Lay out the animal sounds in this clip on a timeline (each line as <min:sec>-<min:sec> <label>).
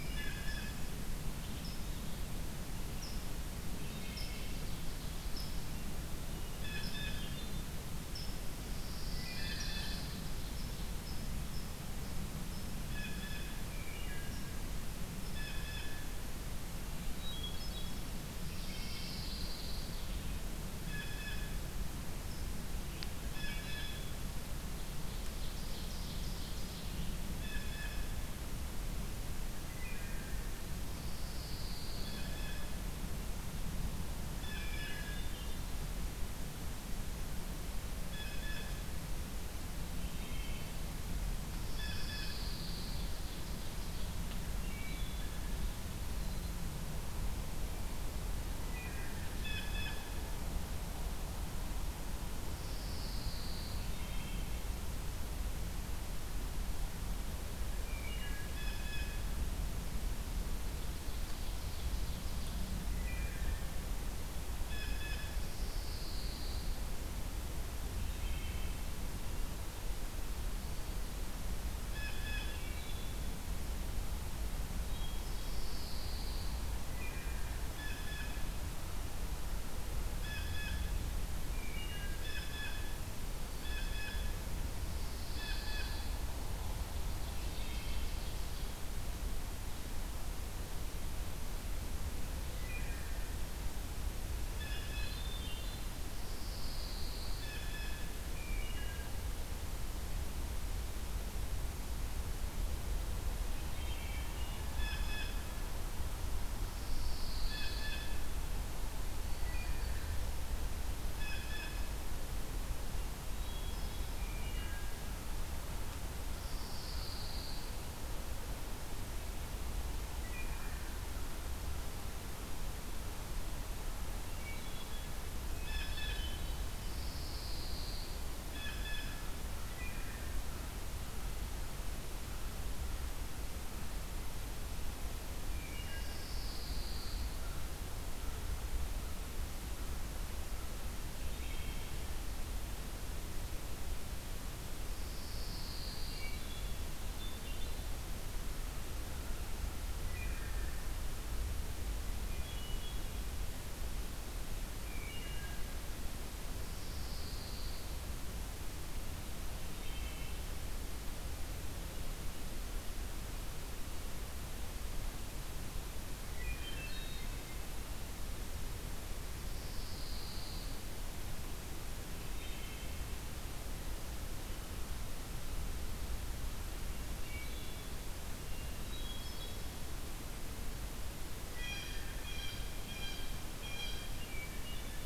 0:00.0-0:00.6 unknown mammal
0:00.0-0:00.7 Wood Thrush (Hylocichla mustelina)
0:00.0-0:00.9 Blue Jay (Cyanocitta cristata)
0:00.0-0:02.1 Red-eyed Vireo (Vireo olivaceus)
0:01.4-0:22.6 unknown mammal
0:03.7-0:04.6 Wood Thrush (Hylocichla mustelina)
0:03.9-0:05.4 Ovenbird (Seiurus aurocapilla)
0:06.5-0:07.6 Hermit Thrush (Catharus guttatus)
0:06.5-0:16.5 Blue Jay (Cyanocitta cristata)
0:08.4-0:10.6 Pine Warbler (Setophaga pinus)
0:09.0-0:10.1 Wood Thrush (Hylocichla mustelina)
0:13.7-0:14.7 Wood Thrush (Hylocichla mustelina)
0:17.0-0:18.4 Hermit Thrush (Catharus guttatus)
0:18.2-0:20.2 Pine Warbler (Setophaga pinus)
0:18.5-0:19.3 Wood Thrush (Hylocichla mustelina)
0:20.8-0:24.1 Blue Jay (Cyanocitta cristata)
0:24.8-0:27.2 Ovenbird (Seiurus aurocapilla)
0:27.3-0:28.3 Blue Jay (Cyanocitta cristata)
0:29.7-0:30.5 Wood Thrush (Hylocichla mustelina)
0:30.7-0:32.4 Pine Warbler (Setophaga pinus)
0:31.9-0:39.3 Blue Jay (Cyanocitta cristata)
0:34.4-0:35.3 Wood Thrush (Hylocichla mustelina)
0:34.6-0:35.7 Hermit Thrush (Catharus guttatus)
0:40.0-0:40.9 Wood Thrush (Hylocichla mustelina)
0:41.4-0:43.2 Pine Warbler (Setophaga pinus)
0:41.7-0:42.4 Blue Jay (Cyanocitta cristata)
0:42.7-0:44.2 Ovenbird (Seiurus aurocapilla)
0:44.6-0:45.5 Wood Thrush (Hylocichla mustelina)
0:48.5-0:49.2 Wood Thrush (Hylocichla mustelina)
0:49.3-0:50.3 Blue Jay (Cyanocitta cristata)
0:52.4-0:53.9 Pine Warbler (Setophaga pinus)
0:53.8-0:54.6 Wood Thrush (Hylocichla mustelina)
0:57.8-0:58.7 Wood Thrush (Hylocichla mustelina)
0:58.5-0:59.3 Blue Jay (Cyanocitta cristata)
1:00.5-1:02.9 Ovenbird (Seiurus aurocapilla)
1:02.9-1:03.7 Wood Thrush (Hylocichla mustelina)
1:04.6-1:05.4 Blue Jay (Cyanocitta cristata)
1:05.2-1:06.8 Pine Warbler (Setophaga pinus)
1:07.8-1:08.9 Wood Thrush (Hylocichla mustelina)
1:11.8-1:12.7 Blue Jay (Cyanocitta cristata)
1:12.5-1:13.4 Wood Thrush (Hylocichla mustelina)
1:14.9-1:15.5 Hermit Thrush (Catharus guttatus)
1:15.3-1:16.7 Pine Warbler (Setophaga pinus)
1:16.8-1:17.6 Wood Thrush (Hylocichla mustelina)
1:17.6-1:24.5 Blue Jay (Cyanocitta cristata)
1:21.5-1:22.3 Wood Thrush (Hylocichla mustelina)
1:24.7-1:26.2 Pine Warbler (Setophaga pinus)
1:25.2-1:26.1 Blue Jay (Cyanocitta cristata)
1:26.9-1:28.9 Ovenbird (Seiurus aurocapilla)
1:27.2-1:28.1 Wood Thrush (Hylocichla mustelina)
1:32.4-1:33.1 Wood Thrush (Hylocichla mustelina)
1:34.5-1:35.4 Blue Jay (Cyanocitta cristata)
1:35.0-1:36.0 Wood Thrush (Hylocichla mustelina)
1:36.0-1:37.6 Pine Warbler (Setophaga pinus)
1:37.3-1:38.6 Blue Jay (Cyanocitta cristata)
1:38.3-1:39.1 Wood Thrush (Hylocichla mustelina)
1:43.6-1:44.5 Wood Thrush (Hylocichla mustelina)
1:44.8-1:45.3 Blue Jay (Cyanocitta cristata)
1:46.6-1:48.1 Pine Warbler (Setophaga pinus)
1:47.5-1:52.1 Blue Jay (Cyanocitta cristata)
1:49.4-1:50.1 Wood Thrush (Hylocichla mustelina)
1:53.3-1:54.3 Hermit Thrush (Catharus guttatus)
1:54.2-1:54.9 Wood Thrush (Hylocichla mustelina)
1:56.3-1:57.9 Pine Warbler (Setophaga pinus)
2:00.2-2:00.9 Wood Thrush (Hylocichla mustelina)
2:04.1-2:05.1 Hermit Thrush (Catharus guttatus)
2:05.4-2:06.3 Blue Jay (Cyanocitta cristata)
2:05.7-2:06.9 Hermit Thrush (Catharus guttatus)
2:06.7-2:08.2 Pine Warbler (Setophaga pinus)
2:08.3-2:09.4 Blue Jay (Cyanocitta cristata)
2:09.6-2:10.3 Wood Thrush (Hylocichla mustelina)
2:15.4-2:16.2 Wood Thrush (Hylocichla mustelina)
2:15.5-2:17.6 Pine Warbler (Setophaga pinus)
2:21.1-2:22.1 Wood Thrush (Hylocichla mustelina)
2:24.9-2:26.4 Pine Warbler (Setophaga pinus)
2:25.9-2:26.9 Wood Thrush (Hylocichla mustelina)
2:27.1-2:27.9 Hermit Thrush (Catharus guttatus)
2:30.0-2:30.9 Wood Thrush (Hylocichla mustelina)
2:32.2-2:33.1 Hermit Thrush (Catharus guttatus)
2:34.8-2:35.8 Wood Thrush (Hylocichla mustelina)
2:36.4-2:38.2 Pine Warbler (Setophaga pinus)
2:39.5-2:40.4 Wood Thrush (Hylocichla mustelina)
2:46.1-2:47.5 Hermit Thrush (Catharus guttatus)
2:49.2-2:51.0 Pine Warbler (Setophaga pinus)
2:52.1-2:53.0 Wood Thrush (Hylocichla mustelina)
2:57.1-2:58.1 Wood Thrush (Hylocichla mustelina)
2:58.3-3:00.0 Hermit Thrush (Catharus guttatus)
3:01.4-3:04.5 Blue Jay (Cyanocitta cristata)
3:01.5-3:02.2 Wood Thrush (Hylocichla mustelina)
3:03.9-3:05.1 Hermit Thrush (Catharus guttatus)